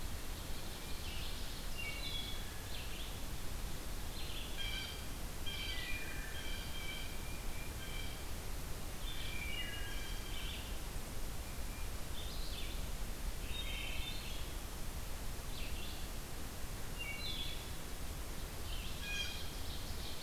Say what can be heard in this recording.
Ovenbird, Red-eyed Vireo, Wood Thrush, Blue Jay